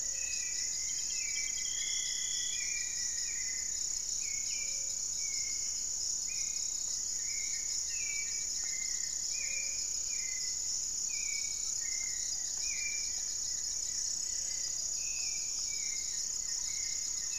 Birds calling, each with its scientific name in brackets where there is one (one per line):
Thrush-like Wren (Campylorhynchus turdinus)
Gray-fronted Dove (Leptotila rufaxilla)
Buff-breasted Wren (Cantorchilus leucotis)
Hauxwell's Thrush (Turdus hauxwelli)
Rufous-fronted Antthrush (Formicarius rufifrons)
Goeldi's Antbird (Akletos goeldii)